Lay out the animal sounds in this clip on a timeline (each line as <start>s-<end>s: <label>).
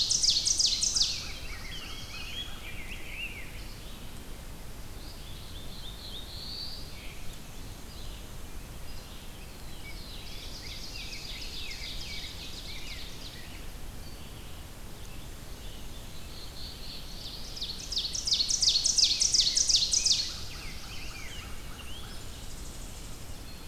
0.0s-1.4s: Ovenbird (Seiurus aurocapilla)
0.8s-3.8s: Rose-breasted Grosbeak (Pheucticus ludovicianus)
0.8s-2.7s: American Crow (Corvus brachyrhynchos)
1.1s-2.5s: Black-throated Blue Warbler (Setophaga caerulescens)
3.4s-14.5s: Red-eyed Vireo (Vireo olivaceus)
5.1s-6.9s: Black-throated Blue Warbler (Setophaga caerulescens)
9.2s-13.6s: Rose-breasted Grosbeak (Pheucticus ludovicianus)
9.3s-11.3s: Black-throated Blue Warbler (Setophaga caerulescens)
10.1s-13.6s: Ovenbird (Seiurus aurocapilla)
14.9s-16.4s: Scarlet Tanager (Piranga olivacea)
15.9s-17.4s: Black-throated Blue Warbler (Setophaga caerulescens)
17.1s-20.5s: Ovenbird (Seiurus aurocapilla)
18.4s-22.6s: Rose-breasted Grosbeak (Pheucticus ludovicianus)
20.2s-21.5s: Black-throated Blue Warbler (Setophaga caerulescens)
21.5s-23.4s: Tennessee Warbler (Leiothlypis peregrina)